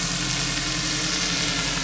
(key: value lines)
label: anthrophony, boat engine
recorder: SoundTrap 500